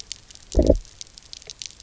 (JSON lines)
{"label": "biophony, low growl", "recorder": "SoundTrap 300"}